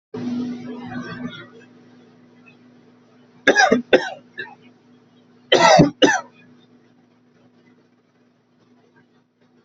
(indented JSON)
{
  "expert_labels": [
    {
      "quality": "good",
      "cough_type": "dry",
      "dyspnea": false,
      "wheezing": false,
      "stridor": false,
      "choking": false,
      "congestion": false,
      "nothing": true,
      "diagnosis": "upper respiratory tract infection",
      "severity": "mild"
    }
  ],
  "age": 32,
  "gender": "male",
  "respiratory_condition": false,
  "fever_muscle_pain": false,
  "status": "symptomatic"
}